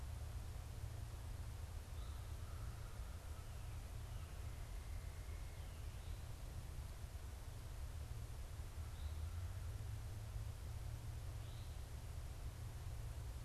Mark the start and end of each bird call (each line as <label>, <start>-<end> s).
American Crow (Corvus brachyrhynchos), 2.3-3.7 s